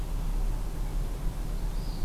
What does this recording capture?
Northern Parula